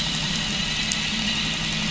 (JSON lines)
{"label": "anthrophony, boat engine", "recorder": "SoundTrap 500"}